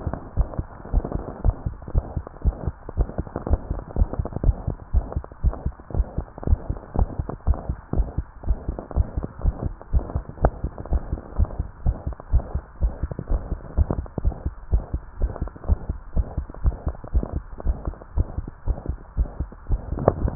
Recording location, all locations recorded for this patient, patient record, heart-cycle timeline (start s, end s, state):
tricuspid valve (TV)
aortic valve (AV)+pulmonary valve (PV)+tricuspid valve (TV)+mitral valve (MV)
#Age: Adolescent
#Sex: Female
#Height: 141.0 cm
#Weight: 34.4 kg
#Pregnancy status: False
#Murmur: Present
#Murmur locations: mitral valve (MV)+tricuspid valve (TV)
#Most audible location: mitral valve (MV)
#Systolic murmur timing: Holosystolic
#Systolic murmur shape: Decrescendo
#Systolic murmur grading: I/VI
#Systolic murmur pitch: Medium
#Systolic murmur quality: Blowing
#Diastolic murmur timing: nan
#Diastolic murmur shape: nan
#Diastolic murmur grading: nan
#Diastolic murmur pitch: nan
#Diastolic murmur quality: nan
#Outcome: Abnormal
#Campaign: 2015 screening campaign
0.00	0.10	unannotated
0.10	0.34	diastole
0.34	0.50	S1
0.50	0.58	systole
0.58	0.70	S2
0.70	0.90	diastole
0.90	1.04	S1
1.04	1.12	systole
1.12	1.24	S2
1.24	1.44	diastole
1.44	1.56	S1
1.56	1.64	systole
1.64	1.76	S2
1.76	1.94	diastole
1.94	2.05	S1
2.05	2.12	systole
2.12	2.24	S2
2.24	2.42	diastole
2.42	2.56	S1
2.56	2.64	systole
2.64	2.74	S2
2.74	2.96	diastole
2.96	3.08	S1
3.08	3.16	systole
3.16	3.26	S2
3.26	3.46	diastole
3.46	3.60	S1
3.60	3.68	systole
3.68	3.80	S2
3.80	3.95	diastole
3.95	4.09	S1
4.09	4.17	systole
4.17	4.26	S2
4.26	4.43	diastole
4.43	4.56	S1
4.56	4.66	systole
4.66	4.78	S2
4.78	4.91	diastole
4.91	5.02	S1
5.02	5.12	systole
5.12	5.24	S2
5.24	5.42	diastole
5.42	5.54	S1
5.54	5.62	systole
5.62	5.74	S2
5.74	5.95	diastole
5.95	6.08	S1
6.08	6.16	systole
6.16	6.26	S2
6.26	6.46	diastole
6.46	6.58	S1
6.58	6.65	systole
6.65	6.78	S2
6.78	6.95	diastole
6.95	7.07	S1
7.07	7.17	systole
7.17	7.30	S2
7.30	7.46	diastole
7.46	7.58	S1
7.58	7.66	systole
7.66	7.78	S2
7.78	7.95	diastole
7.95	8.06	S1
8.06	8.16	systole
8.16	8.26	S2
8.26	8.46	diastole
8.46	8.58	S1
8.58	8.66	systole
8.66	8.76	S2
8.76	8.93	diastole
8.93	9.04	S1
9.04	9.14	systole
9.14	9.22	S2
9.22	9.42	diastole
9.42	9.54	S1
9.54	9.63	systole
9.63	9.76	S2
9.76	9.92	diastole
9.92	10.04	S1
10.04	10.13	systole
10.13	10.24	S2
10.24	10.42	diastole
10.42	10.53	S1
10.53	10.62	systole
10.62	10.72	S2
10.72	10.90	diastole
10.90	11.02	S1
11.02	11.10	systole
11.10	11.18	S2
11.18	11.36	diastole
11.36	11.48	S1
11.48	11.56	systole
11.56	11.68	S2
11.68	11.84	diastole
11.84	11.96	S1
11.96	12.06	systole
12.06	12.16	S2
12.16	12.32	diastole
12.32	12.42	S1
12.42	12.54	systole
12.54	12.62	S2
12.62	12.81	diastole
12.81	12.92	S1
12.92	13.02	systole
13.02	13.12	S2
13.12	13.30	diastole
13.30	13.42	S1
13.42	13.49	systole
13.49	13.58	S2
13.58	13.76	diastole
13.76	13.88	S1
13.88	13.96	systole
13.96	14.06	S2
14.06	14.22	diastole
14.22	14.36	S1
14.36	14.44	systole
14.44	14.54	S2
14.54	14.72	diastole
14.72	14.84	S1
14.84	14.92	systole
14.92	15.02	S2
15.02	15.18	diastole
15.18	15.32	S1
15.32	15.40	systole
15.40	15.50	S2
15.50	15.66	diastole
15.66	15.76	S1
15.76	15.87	systole
15.87	15.96	S2
15.96	16.16	diastole
16.16	16.28	S1
16.28	16.36	systole
16.36	16.46	S2
16.46	16.62	diastole
16.62	16.76	S1
16.76	16.86	systole
16.86	16.96	S2
16.96	17.12	diastole
17.12	17.24	S1
17.24	17.34	systole
17.34	17.44	S2
17.44	17.64	diastole
17.64	17.74	S1
17.74	17.84	systole
17.84	17.94	S2
17.94	18.16	diastole
18.16	18.28	S1
18.28	18.36	systole
18.36	18.48	S2
18.48	18.65	diastole
18.65	18.78	S1
18.78	18.86	systole
18.86	18.98	S2
18.98	19.17	diastole
19.17	19.30	S1
19.30	19.36	systole
19.36	19.48	S2
19.48	19.68	diastole
19.68	19.82	S1
19.82	20.35	unannotated